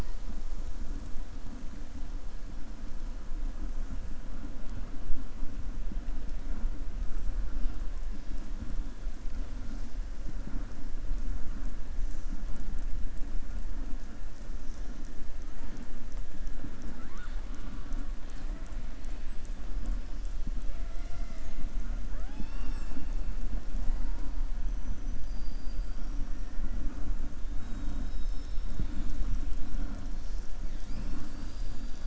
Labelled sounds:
24.7	26.2	killer whale, southern resident, 4.6 to 6.4 kHz
27.6	29.1	killer whale, southern resident, 3.1 to 6.3 kHz

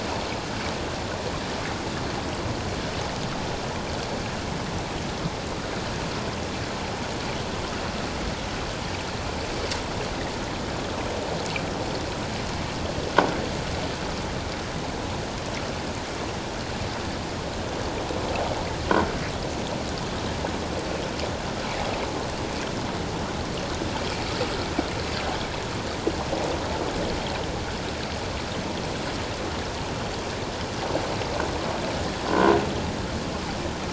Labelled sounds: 32.3	32.5	croaking sound likely from a nearby submerged object, 0.94 to 1.1 kHz

